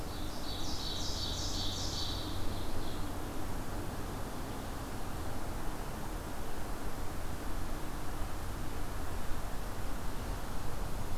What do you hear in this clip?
Ovenbird